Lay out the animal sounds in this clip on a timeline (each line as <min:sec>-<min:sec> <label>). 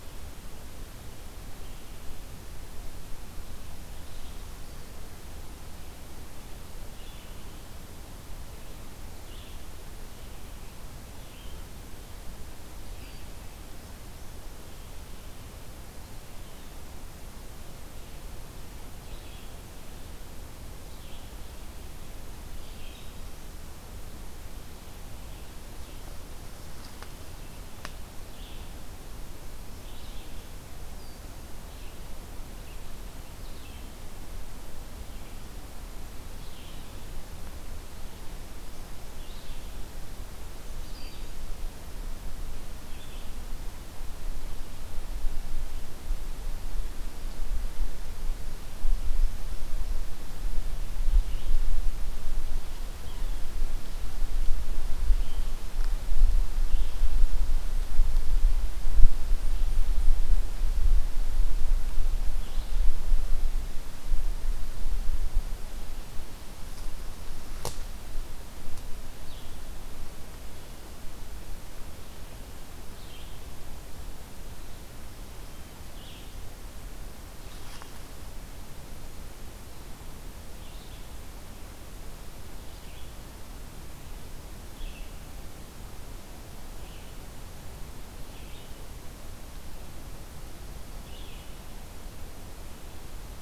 0:00.0-0:26.2 Red-eyed Vireo (Vireo olivaceus)
0:28.2-0:43.2 Red-eyed Vireo (Vireo olivaceus)
0:50.4-1:33.4 Red-eyed Vireo (Vireo olivaceus)